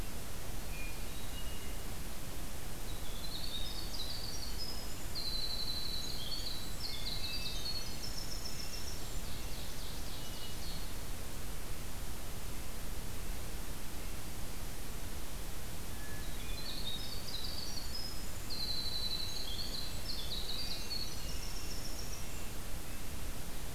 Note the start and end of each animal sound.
[0.64, 1.96] Hermit Thrush (Catharus guttatus)
[2.97, 9.40] Winter Wren (Troglodytes hiemalis)
[6.79, 8.31] Hermit Thrush (Catharus guttatus)
[8.65, 10.89] Ovenbird (Seiurus aurocapilla)
[10.09, 11.21] Hermit Thrush (Catharus guttatus)
[15.86, 16.95] Hermit Thrush (Catharus guttatus)
[16.18, 22.51] Winter Wren (Troglodytes hiemalis)
[20.45, 23.18] Red-breasted Nuthatch (Sitta canadensis)

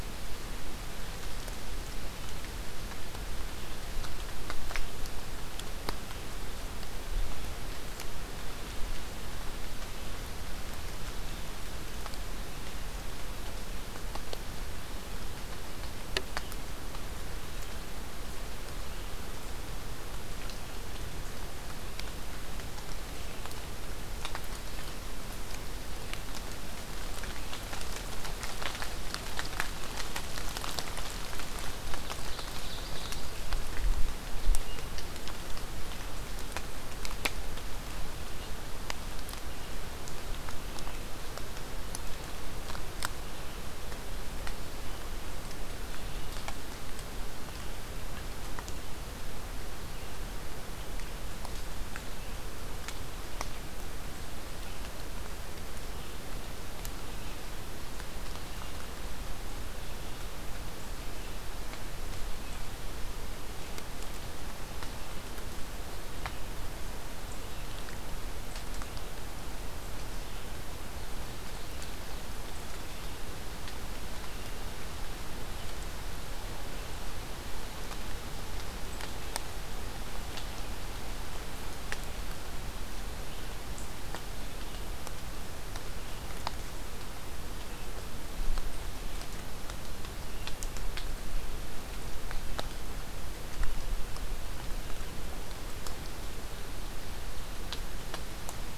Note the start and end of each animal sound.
[31.78, 33.26] Ovenbird (Seiurus aurocapilla)
[34.46, 35.09] Hermit Thrush (Catharus guttatus)
[38.17, 70.51] Red-eyed Vireo (Vireo olivaceus)
[70.70, 72.27] Ovenbird (Seiurus aurocapilla)

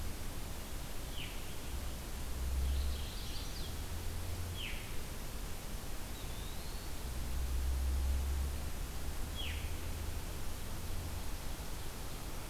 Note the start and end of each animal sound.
[0.90, 1.48] Veery (Catharus fuscescens)
[2.33, 3.58] Mourning Warbler (Geothlypis philadelphia)
[2.97, 3.75] Chestnut-sided Warbler (Setophaga pensylvanica)
[4.28, 5.03] Veery (Catharus fuscescens)
[5.91, 7.13] Eastern Wood-Pewee (Contopus virens)
[9.12, 9.88] Veery (Catharus fuscescens)

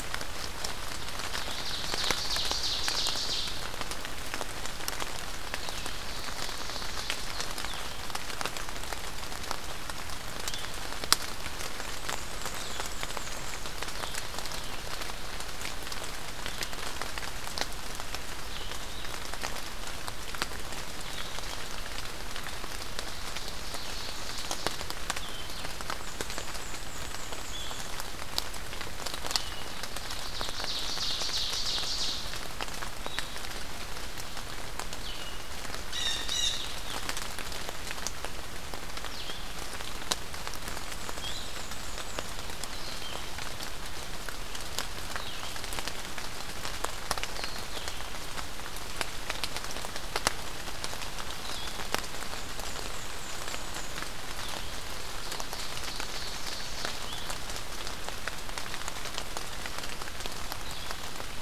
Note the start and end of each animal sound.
[0.00, 54.68] Blue-headed Vireo (Vireo solitarius)
[1.31, 3.76] Ovenbird (Seiurus aurocapilla)
[5.22, 7.79] Ovenbird (Seiurus aurocapilla)
[11.93, 13.65] Black-and-white Warbler (Mniotilta varia)
[22.90, 24.87] Ovenbird (Seiurus aurocapilla)
[25.89, 27.89] Black-and-white Warbler (Mniotilta varia)
[29.90, 32.11] Ovenbird (Seiurus aurocapilla)
[35.78, 36.68] Blue Jay (Cyanocitta cristata)
[40.78, 42.33] Black-and-white Warbler (Mniotilta varia)
[52.14, 54.09] Black-and-white Warbler (Mniotilta varia)
[54.71, 57.01] Ovenbird (Seiurus aurocapilla)
[56.78, 61.42] Blue-headed Vireo (Vireo solitarius)

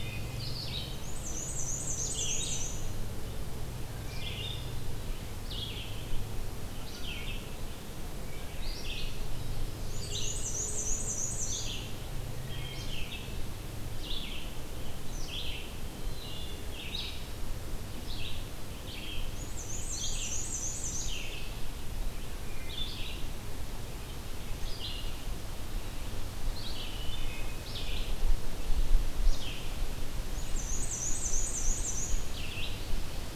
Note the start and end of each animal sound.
[0.00, 33.35] Red-eyed Vireo (Vireo olivaceus)
[0.86, 3.02] Black-and-white Warbler (Mniotilta varia)
[9.88, 11.88] Black-and-white Warbler (Mniotilta varia)
[12.33, 13.13] Wood Thrush (Hylocichla mustelina)
[15.98, 16.72] Wood Thrush (Hylocichla mustelina)
[19.15, 21.33] Black-and-white Warbler (Mniotilta varia)
[26.70, 27.67] Wood Thrush (Hylocichla mustelina)
[30.25, 32.29] Black-and-white Warbler (Mniotilta varia)
[32.04, 33.35] Ovenbird (Seiurus aurocapilla)

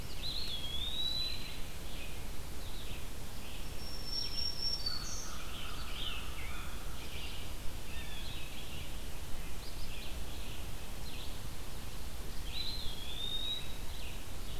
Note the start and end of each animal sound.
[0.00, 14.60] Red-eyed Vireo (Vireo olivaceus)
[0.01, 1.67] Eastern Wood-Pewee (Contopus virens)
[3.61, 5.51] Black-throated Green Warbler (Setophaga virens)
[4.74, 7.09] American Crow (Corvus brachyrhynchos)
[5.06, 6.63] Scarlet Tanager (Piranga olivacea)
[7.81, 8.46] Blue Jay (Cyanocitta cristata)
[12.36, 13.89] Eastern Wood-Pewee (Contopus virens)

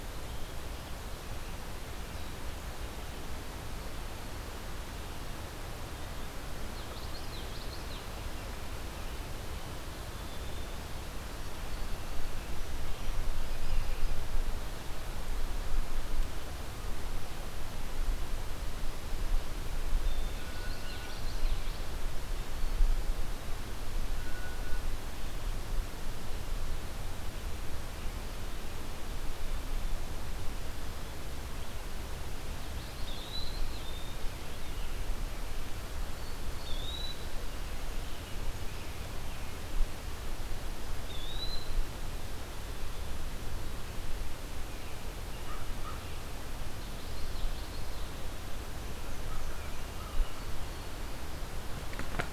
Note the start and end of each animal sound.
[6.54, 8.00] Common Yellowthroat (Geothlypis trichas)
[20.47, 21.94] Common Yellowthroat (Geothlypis trichas)
[32.63, 34.21] Eastern Wood-Pewee (Contopus virens)
[36.51, 37.20] Eastern Wood-Pewee (Contopus virens)
[40.94, 41.93] Eastern Wood-Pewee (Contopus virens)
[45.21, 46.21] American Crow (Corvus brachyrhynchos)
[46.54, 48.26] Common Yellowthroat (Geothlypis trichas)
[47.91, 49.70] Black-and-white Warbler (Mniotilta varia)

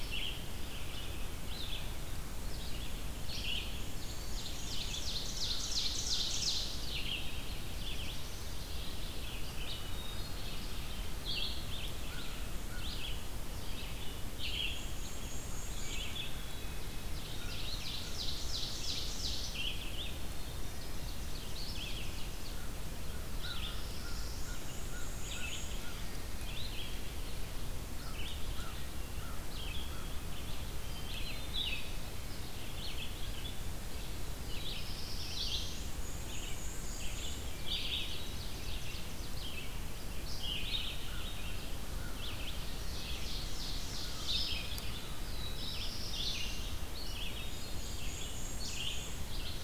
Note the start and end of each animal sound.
[0.00, 43.41] Red-eyed Vireo (Vireo olivaceus)
[3.69, 5.24] Black-and-white Warbler (Mniotilta varia)
[4.01, 6.82] Ovenbird (Seiurus aurocapilla)
[7.43, 8.69] Black-throated Blue Warbler (Setophaga caerulescens)
[9.45, 10.79] Hermit Thrush (Catharus guttatus)
[12.04, 13.09] American Crow (Corvus brachyrhynchos)
[14.39, 16.24] Black-and-white Warbler (Mniotilta varia)
[15.76, 17.01] Hermit Thrush (Catharus guttatus)
[17.06, 19.70] Ovenbird (Seiurus aurocapilla)
[17.18, 18.32] American Crow (Corvus brachyrhynchos)
[19.93, 21.12] Hermit Thrush (Catharus guttatus)
[20.59, 22.83] Ovenbird (Seiurus aurocapilla)
[23.19, 26.12] American Crow (Corvus brachyrhynchos)
[23.27, 24.64] Black-throated Blue Warbler (Setophaga caerulescens)
[24.41, 25.93] Black-and-white Warbler (Mniotilta varia)
[27.86, 30.16] American Crow (Corvus brachyrhynchos)
[30.74, 32.12] Hermit Thrush (Catharus guttatus)
[34.26, 35.88] Black-throated Blue Warbler (Setophaga caerulescens)
[35.68, 37.44] Black-and-white Warbler (Mniotilta varia)
[37.40, 38.50] Hermit Thrush (Catharus guttatus)
[37.56, 39.35] Ovenbird (Seiurus aurocapilla)
[40.98, 42.49] American Crow (Corvus brachyrhynchos)
[42.33, 44.55] Ovenbird (Seiurus aurocapilla)
[44.21, 49.63] Red-eyed Vireo (Vireo olivaceus)
[44.92, 46.83] Black-throated Blue Warbler (Setophaga caerulescens)
[47.00, 48.28] Hermit Thrush (Catharus guttatus)
[47.32, 49.56] Black-and-white Warbler (Mniotilta varia)

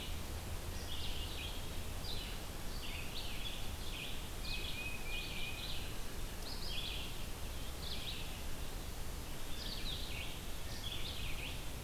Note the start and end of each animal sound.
[0.00, 11.84] Red-eyed Vireo (Vireo olivaceus)
[4.34, 5.85] Tufted Titmouse (Baeolophus bicolor)

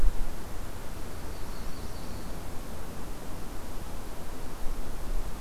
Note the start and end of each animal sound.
[0.69, 2.49] Yellow-rumped Warbler (Setophaga coronata)

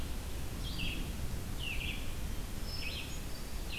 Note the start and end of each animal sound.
[0.34, 3.78] Red-eyed Vireo (Vireo olivaceus)
[2.35, 3.59] Hermit Thrush (Catharus guttatus)

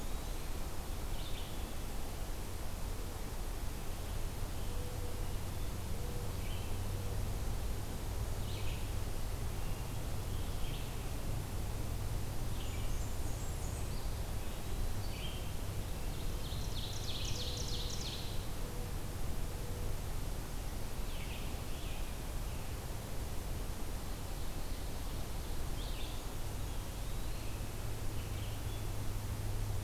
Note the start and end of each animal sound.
[0.00, 0.62] Eastern Wood-Pewee (Contopus virens)
[0.00, 28.81] Red-eyed Vireo (Vireo olivaceus)
[12.42, 14.00] Blackburnian Warbler (Setophaga fusca)
[13.69, 15.07] Eastern Wood-Pewee (Contopus virens)
[16.10, 18.44] Ovenbird (Seiurus aurocapilla)
[26.35, 27.51] Eastern Wood-Pewee (Contopus virens)

